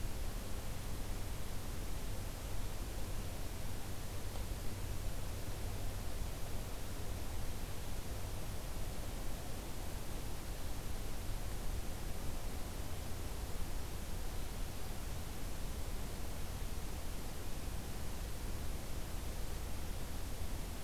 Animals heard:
forest ambience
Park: Hubbard Brook Experimental Forest